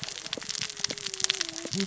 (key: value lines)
label: biophony, cascading saw
recorder: SoundTrap 600 or HydroMoth